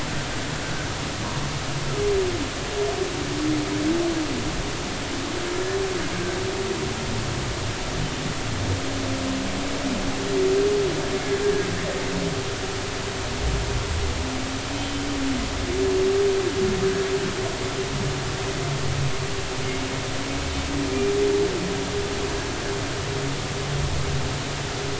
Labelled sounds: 14.7	15.1	humpback whale, 3.0 to 3.1 kHz

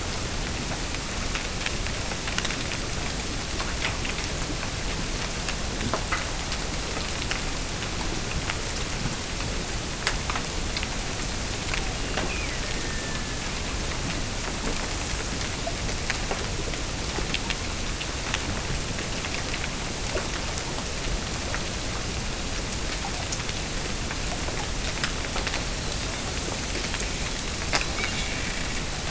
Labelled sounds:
11.9	13.5	killer whale, Bigg's (transient), Gulf of Alaska transient, 1.6 to 2.9 kHz

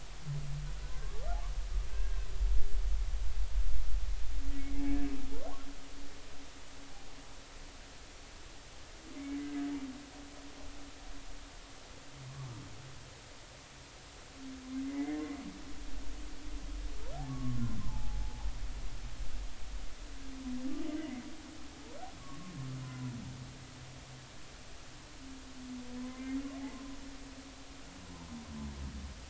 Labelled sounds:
0.8	1.1	humpback whale, 1.5 to 1.7 kHz
1.9	2.2	humpback whale, 1.5 to 1.7 kHz
12.3	12.5	humpback whale, 1.0 to 1.2 kHz
14.8	15.2	humpback whale, 1.9 to 2.1 kHz
17.3	18.5	humpback whale, 0.80 to 1.2 kHz
21.0	21.2	humpback whale, 1.9 to 2.3 kHz
22.2	23.1	humpback whale, 0.93 to 1.2 kHz
26.0	26.4	humpback whale, 0.96 to 2.2 kHz

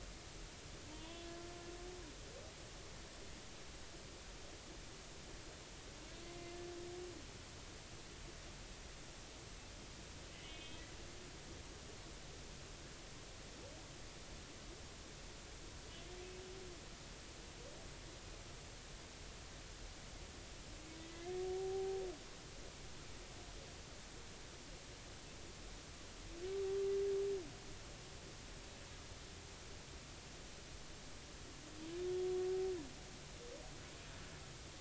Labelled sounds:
0.9	1.3	humpback whale, 0.86 to 3.5 kHz
6.2	6.6	humpback whale, 2.0 to 2.2 kHz
10.3	10.8	humpback whale, 2.0 to 3.6 kHz
21.1	22.0	humpback whale, 0.80 to 1.9 kHz

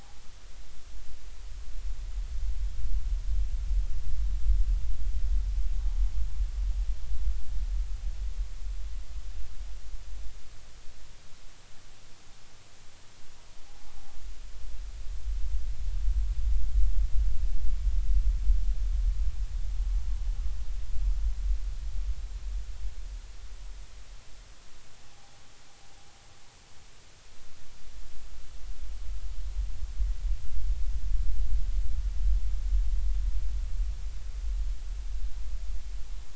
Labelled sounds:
25.1	25.4	noise likely from the mooring, 0.80 to 0.86 kHz

